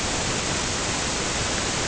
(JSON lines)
{"label": "ambient", "recorder": "HydroMoth"}